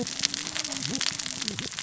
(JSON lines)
{"label": "biophony, cascading saw", "recorder": "SoundTrap 600 or HydroMoth"}